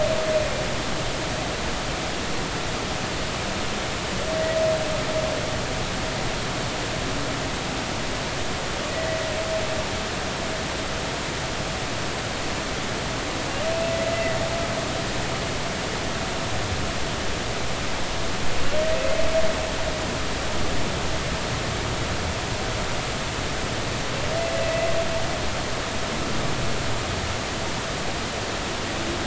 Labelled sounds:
8.9	9.2	humpback whale, 1.9 to 2.0 kHz
14.1	14.4	humpback whale, 1.9 to 2.1 kHz
24.7	24.9	humpback whale, 1.9 to 2.1 kHz

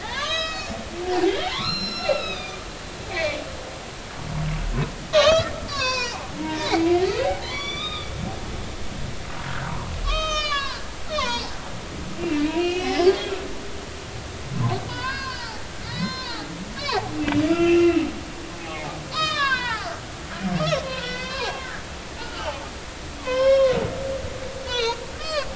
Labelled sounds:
0.0	0.8	humpback whale, 0.80 to 7.1 kHz
1.3	2.6	humpback whale, 0.80 to 6.1 kHz
3.1	3.4	humpback whale, 2.0 to 2.4 kHz
5.1	8.1	humpback whale, 0.80 to 6.2 kHz
9.5	11.4	humpback whale, 0.86 to 6.9 kHz
12.2	13.1	humpback whale, 1.8 to 5.4 kHz
14.9	17.1	humpback whale, 0.80 to 5.8 kHz
17.5	18.0	humpback whale, 1.3 to 2.9 kHz
18.6	20.0	humpback whale, 0.80 to 7.0 kHz
20.6	21.7	humpback whale, 0.80 to 5.7 kHz
22.2	22.6	humpback whale, 1.2 to 1.5 kHz
23.2	23.8	humpback whale, 0.96 to 5.5 kHz
24.6	25.5	humpback whale, 0.86 to 6.1 kHz

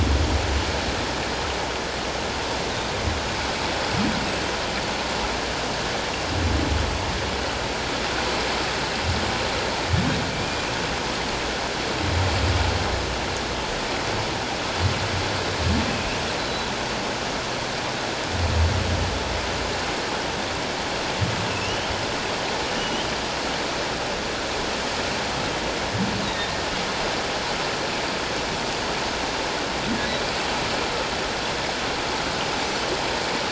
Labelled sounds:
16.4	16.7	Pacific white-sided dolphin, 3.9 to 4.1 kHz
21.5	21.9	humpback whale, 2.5 to 3.2 kHz
22.8	23.1	humpback whale, 2.8 to 3.2 kHz
26.2	26.5	humpback whale, 3.6 to 3.9 kHz

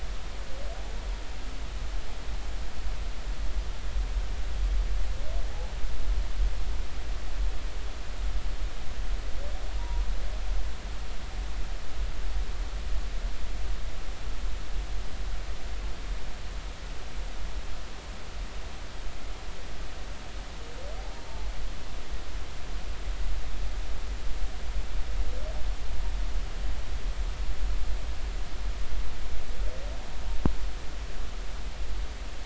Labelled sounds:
9.8	10.0	humpback whale, 0.90 to 1.0 kHz
21.2	21.5	humpback whale, 0.80 to 0.99 kHz

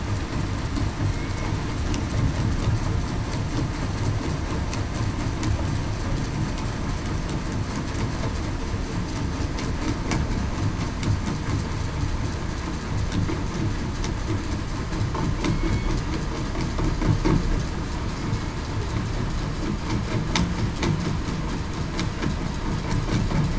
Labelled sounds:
1.1	1.5	killer whale, southern resident, 2.1 to 2.2 kHz
15.5	15.9	killer whale, southern resident, 2.2 to 4.5 kHz

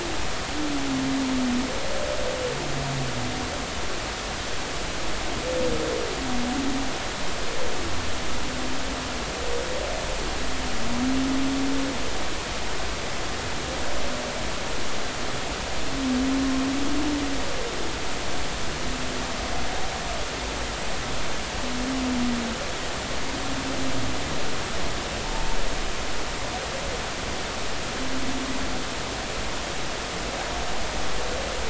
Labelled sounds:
25.2	25.6	humpback whale, 0.86 to 0.96 kHz

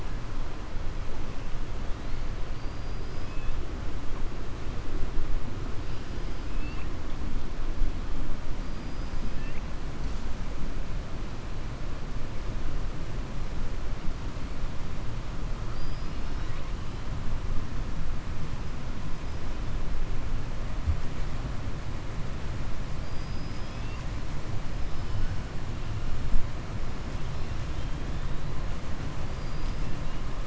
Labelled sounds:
8.6	9.2	killer whale, southern resident, 4.5 to 5.6 kHz
22.9	24.0	killer whale, southern resident, 2.5 to 5.6 kHz
29.3	29.8	killer whale, southern resident, 4.3 to 5.6 kHz

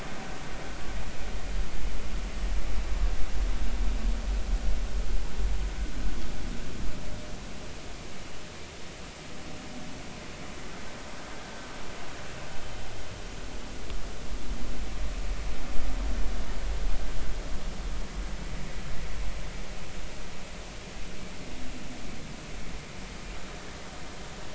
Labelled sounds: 11.4	11.7	vessel noise, 1.5 to 1.7 kHz

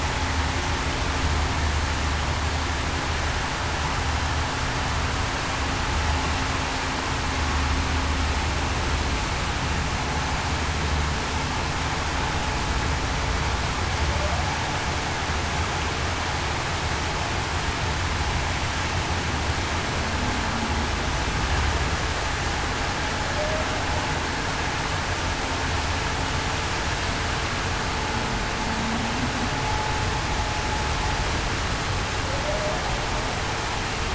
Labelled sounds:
32.4	32.8	humpback whale, 0.56 to 0.77 kHz

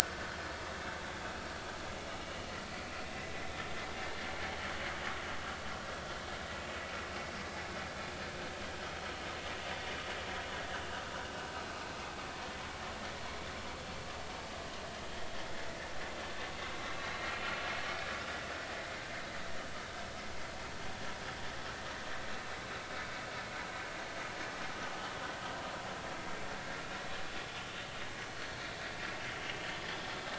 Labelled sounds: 17.3	17.5	vessel noise, 2.9 to 3.1 kHz
18.0	18.3	vessel noise, 4.0 to 4.1 kHz
28.6	28.8	vessel noise, 3.8 to 4.0 kHz
29.8	30.0	vessel noise, 4.9 to 5.1 kHz

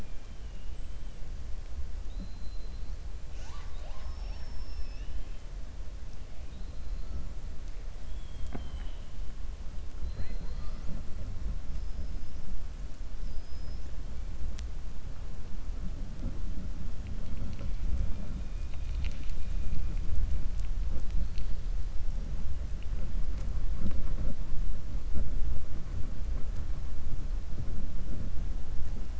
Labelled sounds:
0.0	0.4	killer whale, 1.6 to 3.2 kHz
2.0	2.9	killer whale, 3.6 to 4.4 kHz
11.7	12.3	killer whale, 5.0 to 5.5 kHz

